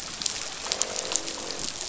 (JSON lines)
{"label": "biophony, croak", "recorder": "SoundTrap 500"}